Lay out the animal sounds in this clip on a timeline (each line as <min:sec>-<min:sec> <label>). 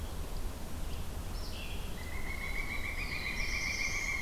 0:01.2-0:04.2 Red-eyed Vireo (Vireo olivaceus)
0:01.8-0:04.2 Pileated Woodpecker (Dryocopus pileatus)
0:02.8-0:04.2 Black-throated Blue Warbler (Setophaga caerulescens)